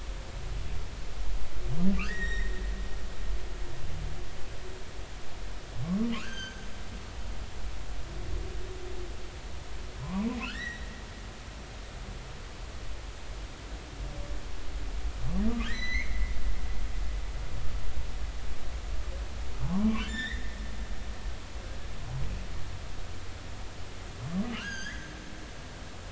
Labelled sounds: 2.0	2.6	humpback whale, 1.1 to 7.6 kHz
6.1	6.7	humpback whale, 1.0 to 6.4 kHz
10.0	10.9	humpback whale, 0.90 to 6.0 kHz
15.5	16.3	humpback whale, 1.1 to 8.0 kHz
19.6	20.6	humpback whale, 0.80 to 3.9 kHz
24.5	25.1	humpback whale, 1.2 to 6.6 kHz

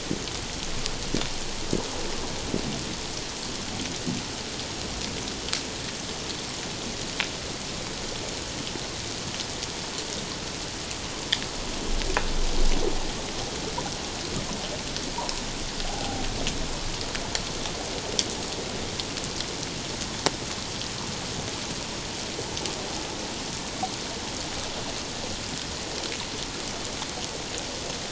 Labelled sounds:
15.1	15.4	water noise, 0.88 to 1.2 kHz
15.8	16.2	humpback whale, 0.78 to 0.88 kHz

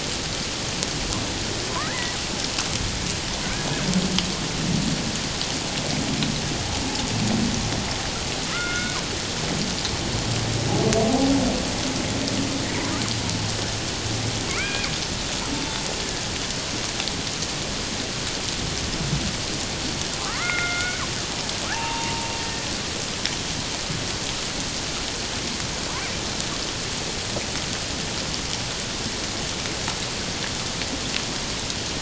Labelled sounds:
8.5	9.0	killer whale, Bigg's (transient), 1.2 to 2.3 kHz
14.5	14.9	killer whale, Bigg's (transient), 1.0 to 2.5 kHz
20.3	21.0	killer whale, Bigg's (transient), 0.94 to 2.5 kHz
21.7	22.7	killer whale, Bigg's (transient), 0.78 to 1.9 kHz

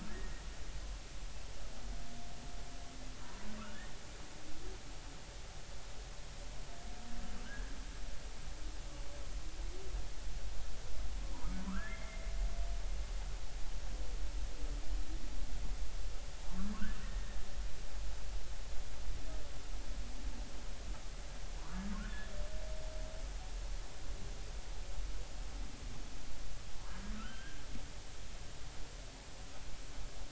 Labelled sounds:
0.1	0.4	humpback whale, 1.6 to 2.0 kHz
11.6	12.3	humpback whale, 0.93 to 2.2 kHz
17.0	17.3	humpback whale, 1.8 to 2.0 kHz
22.0	22.3	humpback whale, 1.6 to 1.8 kHz
27.2	27.6	humpback whale, 1.2 to 3.2 kHz

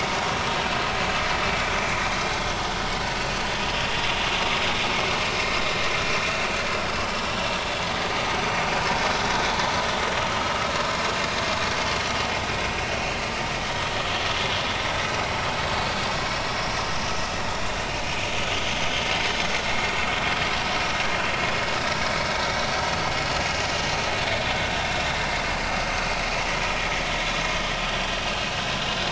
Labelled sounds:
27.9	28.1	vessel noise, 3.1 to 5.8 kHz

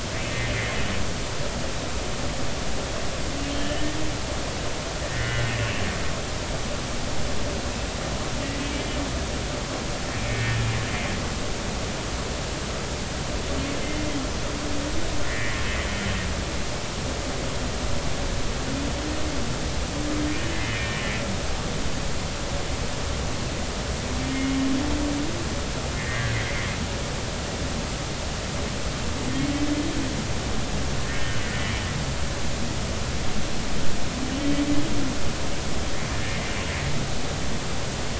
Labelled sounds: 4.6	5.5	humpback whale, 1.4 to 2.1 kHz
10.3	10.6	humpback whale, 1.8 to 1.9 kHz
15.3	15.6	humpback whale, 1.7 to 2.1 kHz
20.5	21.0	humpback whale, 1.8 to 2.6 kHz
24.3	24.6	humpback whale, 2.1 to 2.2 kHz
26.0	26.3	humpback whale, 1.6 to 2.1 kHz
31.0	31.5	humpback whale, 1.8 to 3.0 kHz
34.3	34.6	humpback whale, 2.9 to 3.2 kHz
36.1	36.4	humpback whale, 1.7 to 1.9 kHz

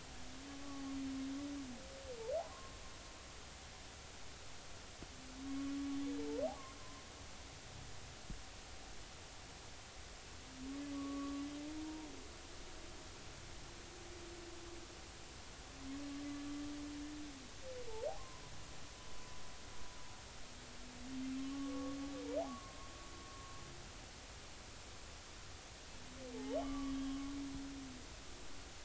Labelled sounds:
2.4	2.8	humpback whale, 0.96 to 1.1 kHz
10.9	11.4	humpback whale, 1.1 to 1.2 kHz
18.2	18.4	humpback whale, 0.96 to 1.1 kHz
21.4	22.8	humpback whale, 1.0 to 1.2 kHz
26.4	27.3	humpback whale, 0.96 to 3.4 kHz

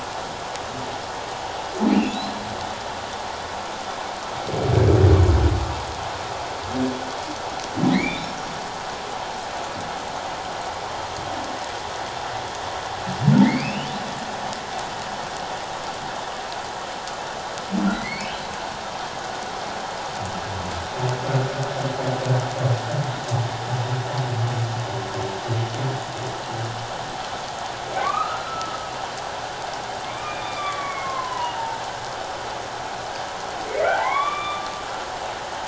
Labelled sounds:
1.9	2.2	humpback whale, 2.2 to 2.9 kHz
7.9	8.3	humpback whale, 1.8 to 3.7 kHz
13.4	13.9	humpback whale, 1.8 to 3.0 kHz
17.9	18.3	humpback whale, 1.9 to 2.4 kHz
27.9	28.8	humpback whale, 1.0 to 2.6 kHz
30.0	31.8	humpback whale, 0.84 to 3.6 kHz
33.8	34.7	humpback whale, 0.78 to 3.6 kHz

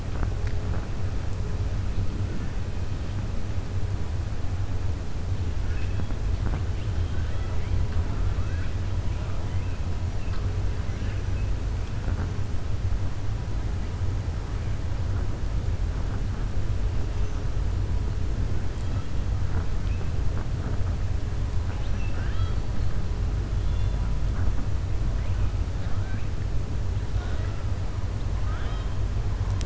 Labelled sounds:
5.6	6.1	killer whale, southern resident, 1.4 to 3.7 kHz
8.3	8.7	killer whale, southern resident, 1.2 to 3.5 kHz
21.6	22.6	killer whale, southern resident, 0.85 to 4.6 kHz
28.3	28.9	killer whale, southern resident, 0.71 to 3.8 kHz

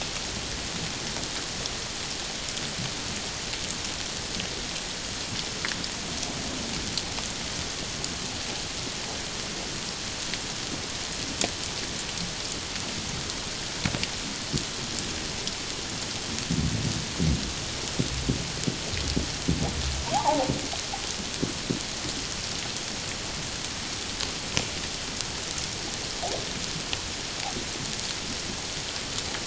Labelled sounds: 20.1	20.5	humpback whale, 0.78 to 1.2 kHz

